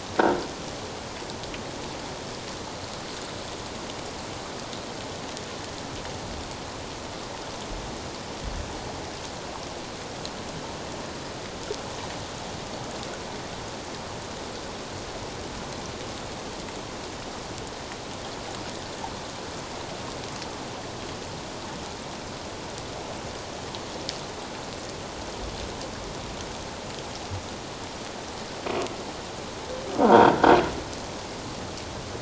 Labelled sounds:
30.1	30.5	croaking sound likely from a nearby submerged object, 0.88 to 1.7 kHz

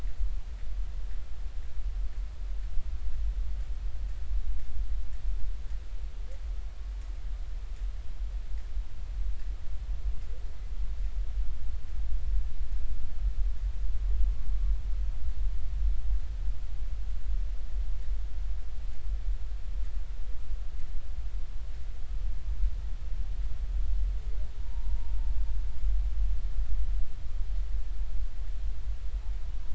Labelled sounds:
24.6	25.0	humpback whale, 0.86 to 0.99 kHz

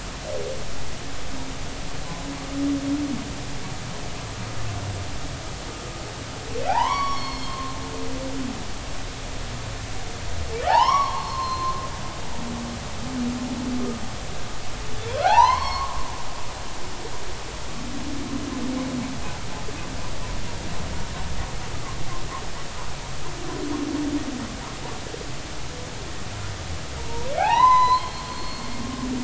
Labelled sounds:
6.7	7.8	humpback whale, 0.80 to 5.7 kHz
10.6	11.8	humpback whale, 0.80 to 5.8 kHz
15.2	16.0	humpback whale, 0.80 to 5.5 kHz
27.0	28.6	humpback whale, 0.80 to 4.4 kHz

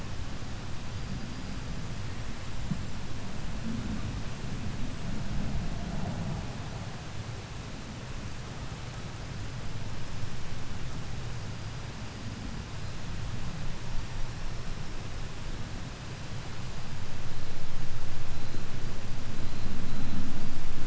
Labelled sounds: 0.6	2.2	killer whale, 4.5 to 5.2 kHz
9.3	10.6	killer whale, 4.7 to 5.4 kHz
11.2	13.0	killer whale, 4.5 to 5.1 kHz
13.7	17.0	killer whale, 4.1 to 5.7 kHz
18.2	18.6	killer whale, 3.8 to 4.3 kHz
19.3	20.3	killer whale, 3.8 to 4.3 kHz

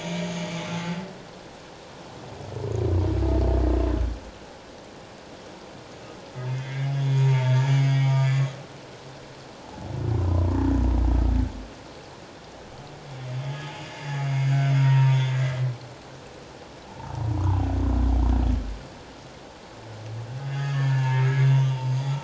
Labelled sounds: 0.5	0.8	humpback whale, 5.9 to 6.1 kHz
6.5	8.6	humpback whale, 0.84 to 4.9 kHz
10.2	10.6	humpback whale, 0.91 to 1.1 kHz
13.7	15.7	humpback whale, 0.88 to 5.1 kHz
16.9	17.7	humpback whale, 0.78 to 1.6 kHz
20.5	21.7	humpback whale, 0.84 to 4.8 kHz

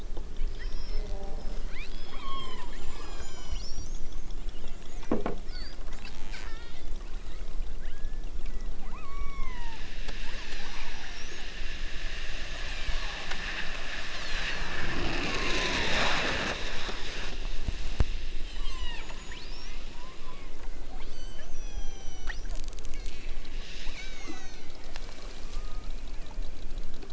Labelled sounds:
0.5	1.2	killer whale, southern Alaska resident, 1.2 to 5.7 kHz
1.8	3.8	killer whale, southern Alaska resident, 0.46 to 6.2 kHz
4.7	5.4	killer whale, southern Alaska resident, 0.96 to 3.0 kHz
6.3	7.0	killer whale, southern Alaska resident, 0.87 to 5.6 kHz
7.8	8.4	killer whale, southern Alaska resident, 0.78 to 4.2 kHz
9.0	9.9	killer whale, southern Alaska resident, 0.64 to 6.1 kHz
10.4	11.5	killer whale, southern Alaska resident, 4.1 to 6.3 kHz
12.6	13.2	killer whale, southern Alaska resident, 6.5 to 8.0 kHz
14.0	14.8	killer whale, southern Alaska resident, 6.5 to 8.0 kHz
15.2	16.0	killer whale, southern Alaska resident, 0.73 to 1.4 kHz
18.3	20.6	killer whale, southern Alaska resident, 0.50 to 8.0 kHz
21.0	22.5	killer whale, southern Alaska resident, 0.50 to 8.0 kHz
23.0	23.5	killer whale, southern Alaska resident, 4.0 to 7.3 kHz
23.8	26.0	killer whale, southern Alaska resident, 0.78 to 8.0 kHz

